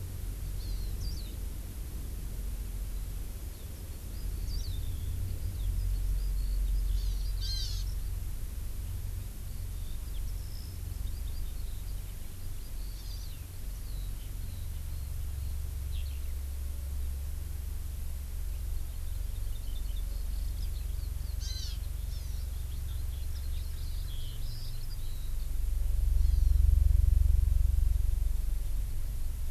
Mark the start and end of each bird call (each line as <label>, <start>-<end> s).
Hawaii Amakihi (Chlorodrepanis virens), 0.6-0.9 s
Eurasian Skylark (Alauda arvensis), 1.0-1.3 s
Eurasian Skylark (Alauda arvensis), 3.7-8.1 s
Hawaii Amakihi (Chlorodrepanis virens), 6.9-7.8 s
Eurasian Skylark (Alauda arvensis), 9.4-15.6 s
Hawaii Amakihi (Chlorodrepanis virens), 12.9-13.3 s
Eurasian Skylark (Alauda arvensis), 15.9-16.2 s
Eurasian Skylark (Alauda arvensis), 20.0-25.3 s
Hawaii Amakihi (Chlorodrepanis virens), 21.4-21.8 s
Hawaii Amakihi (Chlorodrepanis virens), 22.1-22.4 s
Hawaii Amakihi (Chlorodrepanis virens), 26.2-26.6 s